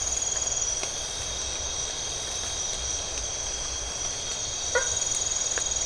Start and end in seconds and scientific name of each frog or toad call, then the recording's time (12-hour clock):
4.7	5.0	Boana faber
2:15am